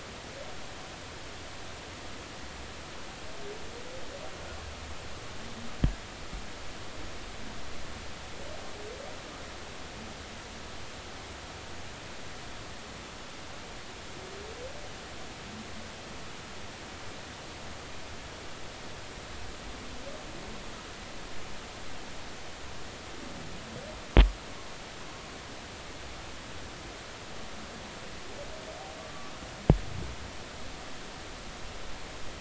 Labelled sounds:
29.0	29.3	humpback whale, 1.1 to 1.2 kHz

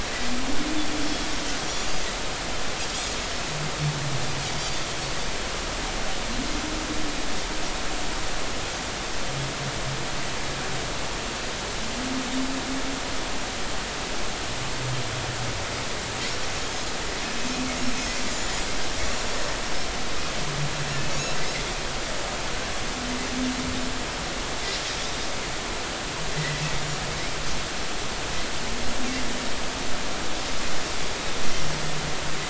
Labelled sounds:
1.7	1.9	Pacific white-sided dolphin, 6.8 to 7.2 kHz
2.9	3.2	Pacific white-sided dolphin, 6.5 to 6.9 kHz
18.3	18.7	Pacific white-sided dolphin, 6.8 to 7.2 kHz
26.4	26.6	Pacific white-sided dolphin, 1.8 to 2.0 kHz

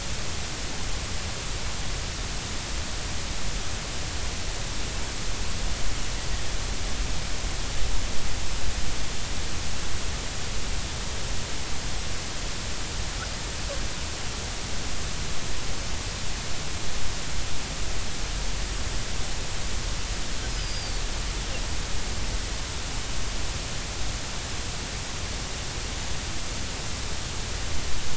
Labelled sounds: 20.5	21.0	killer whale, Bigg's (transient), 4.5 to 5.2 kHz

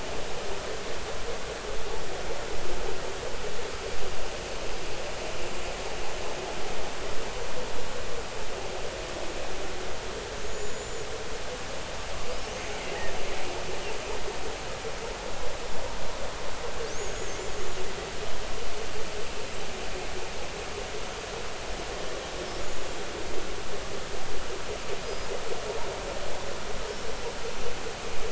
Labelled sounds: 10.4	11.1	killer whale, 6.3 to 7.2 kHz
17.0	17.3	killer whale, 6.4 to 7.0 kHz
25.0	25.3	killer whale, 4.8 to 5.1 kHz

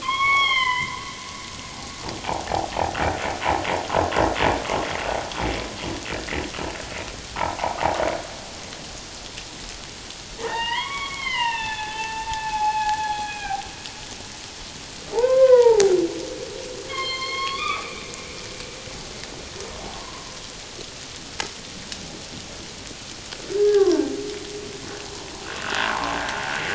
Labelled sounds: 0.0	1.0	humpback whale, 0.88 to 5.6 kHz
7.6	7.8	humpback whale, 0.78 to 1.3 kHz
10.3	13.7	humpback whale, 0.78 to 3.9 kHz
15.1	15.9	humpback whale, 0.78 to 2.2 kHz
16.9	18.0	humpback whale, 1.0 to 4.7 kHz
20.0	20.3	humpback whale, 0.88 to 1.1 kHz
23.6	24.1	humpback whale, 0.84 to 1.7 kHz
25.6	26.2	humpback whale, 0.81 to 1.7 kHz

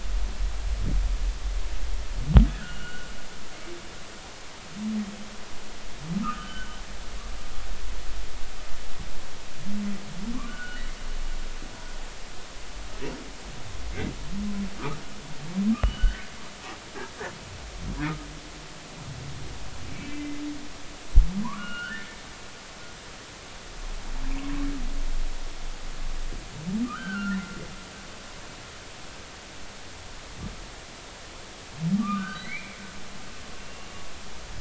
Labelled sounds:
2.5	3.1	humpback whale, 1.3 to 2.9 kHz
6.2	6.8	humpback whale, 1.1 to 3.1 kHz
10.3	10.8	humpback whale, 0.99 to 1.6 kHz
15.8	16.3	humpback whale, 1.4 to 3.1 kHz
20.0	20.4	humpback whale, 2.0 to 2.7 kHz
21.4	22.1	humpback whale, 0.90 to 3.1 kHz
26.8	27.4	humpback whale, 1.1 to 1.6 kHz
32.0	32.8	humpback whale, 1.1 to 2.5 kHz
33.6	33.9	humpback whale, 2.7 to 2.8 kHz

